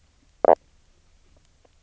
{"label": "biophony, knock croak", "recorder": "SoundTrap 300"}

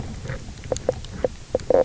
{"label": "biophony, knock croak", "recorder": "SoundTrap 300"}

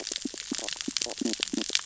{"label": "biophony, stridulation", "recorder": "SoundTrap 600 or HydroMoth"}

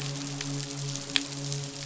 {"label": "biophony, midshipman", "recorder": "SoundTrap 500"}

